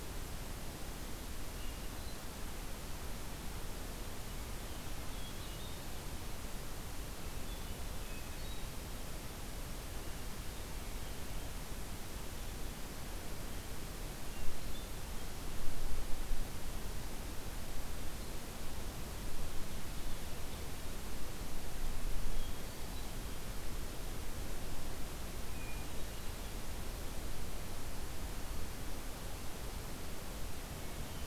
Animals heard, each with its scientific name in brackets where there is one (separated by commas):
Hermit Thrush (Catharus guttatus)